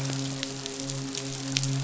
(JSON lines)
{"label": "biophony, midshipman", "recorder": "SoundTrap 500"}